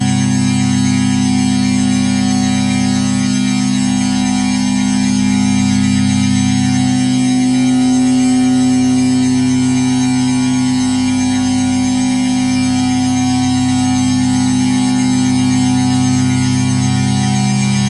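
Multiple tones drone loudly at the same time. 0:00.0 - 0:17.9

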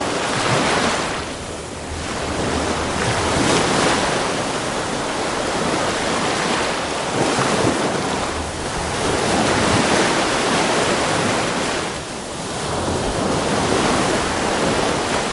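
Ocean waves calmly rise and collapse on the beach. 0:00.0 - 0:15.3
Distant strong wind. 0:12.9 - 0:15.3

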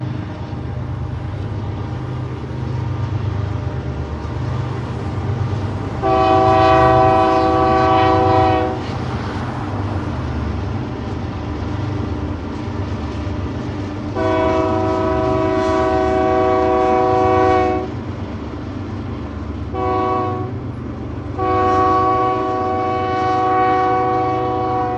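A loud, continuous humming noise emitted by an engine. 0:00.0 - 0:06.0
A train horn sounds continuously with a loud, reverberating tone. 0:05.9 - 0:08.9
A loud, continuous humming noise emitted by an engine. 0:08.8 - 0:14.1
A train horn sounds continuously with a loud, reverberating tone. 0:14.0 - 0:17.9
A loud, continuous humming noise emitted by an engine. 0:17.9 - 0:19.7
A train horn sounds loudly and reverberates in a uniform manner. 0:19.7 - 0:20.6
A loud, continuous humming noise emitted by an engine. 0:20.6 - 0:21.4
A train horn sounds continuously with a loud, reverberating tone. 0:21.4 - 0:25.0

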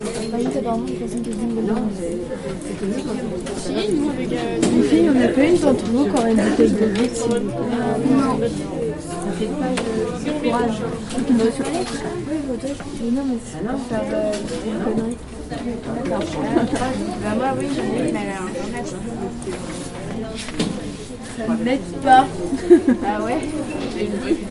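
Women are chatting energetically with each other. 0:00.0 - 0:24.5
A woman giggles joyfully. 0:16.3 - 0:17.4
A woman giggles joyfully. 0:22.6 - 0:23.7

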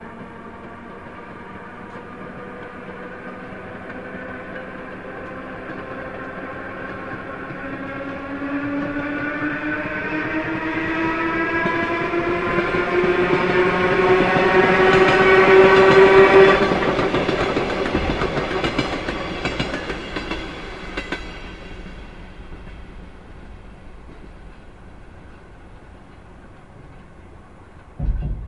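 A train approaches with increasing sound. 0:00.0 - 0:16.8
A train sound gradually decreases as it moves away. 0:16.2 - 0:27.9
Train wheels rolling over rails. 0:27.9 - 0:28.5

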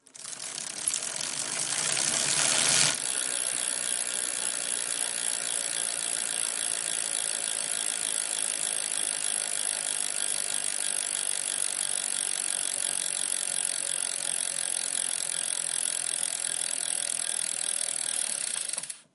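Pedals turning on a bike. 0:00.0 - 0:03.2
A bicycle chain whirrs. 0:03.1 - 0:13.9
A bicycle chain spins and gradually slows down. 0:14.0 - 0:19.1

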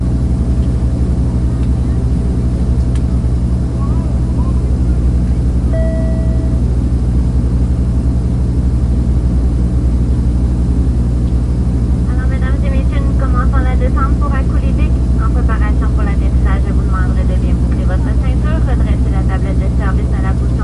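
A constant low rumbling noise like an aircraft, with a soft high-pitched chime from a PA system occurring midway. 0:00.0 - 0:12.1
A woman is speaking in French in a muffled tone over a PA system with a constant low, rumbling background noise from an aircraft. 0:12.1 - 0:20.6

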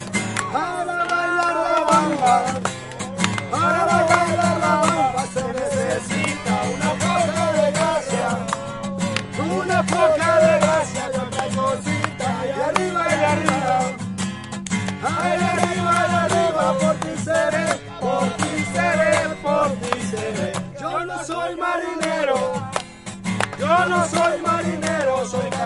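A lively Latin guitar melody is played with rhythmic precision, blending with people chatting, laughing, occasional singing, and bustling street noise in a vibrant downtown atmosphere. 0:00.3 - 0:25.7

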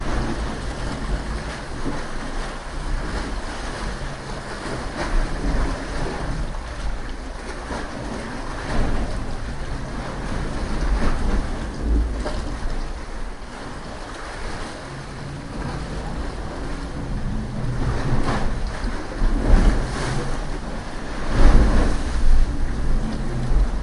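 Continuous water sounds, as if on the ocean or at sea. 0:00.0 - 0:23.8
Waves rhythmically rocking a boat or surface. 0:18.0 - 0:23.8

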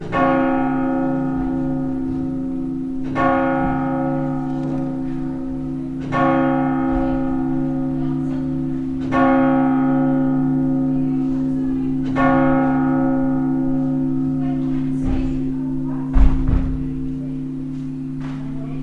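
Continuous pitch sounds from a church bell. 0:00.1 - 0:16.1

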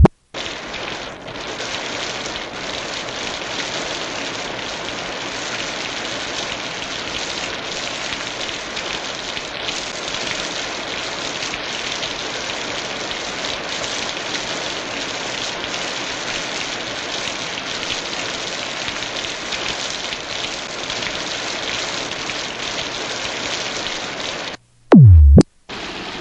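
Synthetic whooping sound. 0:00.0 - 0:00.1
Raindrops falling on an umbrella. 0:00.3 - 0:24.6
Synthetic beep sound. 0:24.9 - 0:25.5
Raindrops falling on an umbrella. 0:25.7 - 0:26.2

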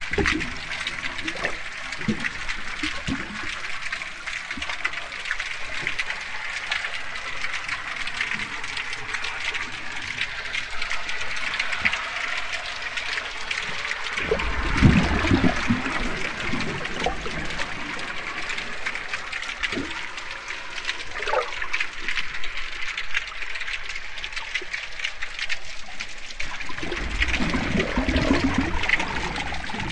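Clattering of small, hard objects, possibly stones, at moderate volume. 0:00.0 - 0:29.9
Water bubbling loudly. 0:00.0 - 0:06.9
Water bubbling loudly. 0:14.2 - 0:18.1
Water bubbling at moderate volume. 0:20.5 - 0:29.9

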